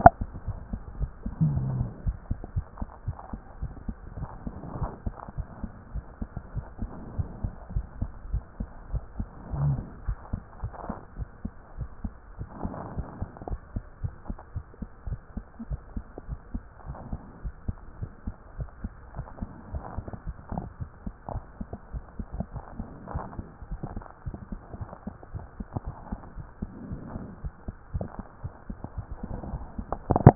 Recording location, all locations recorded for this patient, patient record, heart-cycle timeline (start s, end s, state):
aortic valve (AV)
aortic valve (AV)+pulmonary valve (PV)+tricuspid valve (TV)+mitral valve (MV)
#Age: Child
#Sex: Female
#Height: 114.0 cm
#Weight: 26.4 kg
#Pregnancy status: False
#Murmur: Absent
#Murmur locations: nan
#Most audible location: nan
#Systolic murmur timing: nan
#Systolic murmur shape: nan
#Systolic murmur grading: nan
#Systolic murmur pitch: nan
#Systolic murmur quality: nan
#Diastolic murmur timing: nan
#Diastolic murmur shape: nan
#Diastolic murmur grading: nan
#Diastolic murmur pitch: nan
#Diastolic murmur quality: nan
#Outcome: Normal
#Campaign: 2014 screening campaign
0.00	2.04	unannotated
2.04	2.16	S1
2.16	2.28	systole
2.28	2.38	S2
2.38	2.54	diastole
2.54	2.66	S1
2.66	2.80	systole
2.80	2.88	S2
2.88	3.06	diastole
3.06	3.16	S1
3.16	3.32	systole
3.32	3.42	S2
3.42	3.62	diastole
3.62	3.72	S1
3.72	3.86	systole
3.86	3.96	S2
3.96	4.18	diastole
4.18	4.28	S1
4.28	4.44	systole
4.44	4.52	S2
4.52	4.78	diastole
4.78	4.90	S1
4.90	5.04	systole
5.04	5.14	S2
5.14	5.36	diastole
5.36	5.48	S1
5.48	5.62	systole
5.62	5.70	S2
5.70	5.92	diastole
5.92	6.04	S1
6.04	6.20	systole
6.20	6.28	S2
6.28	6.54	diastole
6.54	6.66	S1
6.66	6.80	systole
6.80	6.90	S2
6.90	7.16	diastole
7.16	7.28	S1
7.28	7.42	systole
7.42	7.52	S2
7.52	7.74	diastole
7.74	7.86	S1
7.86	8.00	systole
8.00	8.10	S2
8.10	8.30	diastole
8.30	8.44	S1
8.44	8.58	systole
8.58	8.68	S2
8.68	8.92	diastole
8.92	9.02	S1
9.02	9.18	systole
9.18	9.26	S2
9.26	9.53	diastole
9.53	9.63	S1
9.63	9.75	systole
9.75	9.85	S2
9.85	10.07	diastole
10.07	10.17	S1
10.17	10.30	systole
10.30	10.40	S2
10.40	10.62	diastole
10.62	10.72	S1
10.72	10.88	systole
10.88	10.98	S2
10.98	11.18	diastole
11.18	11.28	S1
11.28	11.44	systole
11.44	11.52	S2
11.52	11.78	diastole
11.78	11.88	S1
11.88	12.04	systole
12.04	12.14	S2
12.14	12.38	diastole
12.38	12.48	S1
12.48	12.64	systole
12.64	12.74	S2
12.74	12.94	diastole
12.94	13.06	S1
13.06	13.20	systole
13.20	13.30	S2
13.30	13.48	diastole
13.48	13.60	S1
13.60	13.74	systole
13.74	13.84	S2
13.84	14.02	diastole
14.02	14.14	S1
14.14	14.28	systole
14.28	14.38	S2
14.38	14.54	diastole
14.54	14.64	S1
14.64	14.80	systole
14.80	14.88	S2
14.88	15.06	diastole
15.06	15.20	S1
15.20	15.36	systole
15.36	15.44	S2
15.44	15.68	diastole
15.68	15.80	S1
15.80	15.94	systole
15.94	16.04	S2
16.04	16.28	diastole
16.28	16.40	S1
16.40	16.54	systole
16.54	16.64	S2
16.64	16.86	diastole
16.86	16.98	S1
16.98	17.10	systole
17.10	17.20	S2
17.20	17.42	diastole
17.42	17.54	S1
17.54	17.66	systole
17.66	17.76	S2
17.76	18.00	diastole
18.00	18.10	S1
18.10	18.26	systole
18.26	18.34	S2
18.34	18.58	diastole
18.58	18.68	S1
18.68	18.82	systole
18.82	18.92	S2
18.92	19.16	diastole
19.16	19.26	S1
19.26	19.40	systole
19.40	19.50	S2
19.50	19.72	diastole
19.72	19.84	S1
19.84	19.96	systole
19.96	20.06	S2
20.06	20.26	diastole
20.26	20.36	S1
20.36	20.52	systole
20.52	20.64	S2
20.64	20.82	diastole
20.82	20.90	S1
20.90	21.04	systole
21.04	21.14	S2
21.14	21.32	diastole
21.32	21.44	S1
21.44	21.60	systole
21.60	21.68	S2
21.68	21.94	diastole
21.94	22.04	S1
22.04	22.18	systole
22.18	22.26	S2
22.26	22.54	diastole
22.54	22.60	S1
22.60	22.78	systole
22.78	22.86	S2
22.86	23.12	diastole
23.12	23.24	S1
23.24	23.38	systole
23.38	23.46	S2
23.46	23.70	diastole
23.70	23.80	S1
23.80	23.94	systole
23.94	24.04	S2
24.04	24.26	diastole
24.26	24.36	S1
24.36	24.50	systole
24.50	24.60	S2
24.60	24.78	diastole
24.78	24.90	S1
24.90	25.06	systole
25.06	25.14	S2
25.14	25.34	diastole
25.34	25.44	S1
25.44	25.58	systole
25.58	25.66	S2
25.66	25.86	diastole
25.86	25.96	S1
25.96	26.10	systole
26.10	26.20	S2
26.20	26.36	diastole
26.36	26.46	S1
26.46	26.62	systole
26.62	26.70	S2
26.70	26.88	diastole
26.88	27.00	S1
27.00	27.16	systole
27.16	27.26	S2
27.26	27.42	diastole
27.42	27.54	S1
27.54	27.66	systole
27.66	27.76	S2
27.76	27.94	diastole
27.94	28.06	S1
28.06	28.18	systole
28.18	28.26	S2
28.26	28.44	diastole
28.44	28.52	S1
28.52	28.68	systole
28.68	28.78	S2
28.78	28.98	diastole
28.98	30.35	unannotated